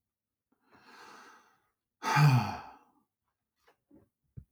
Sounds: Sigh